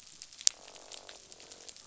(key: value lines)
label: biophony, croak
recorder: SoundTrap 500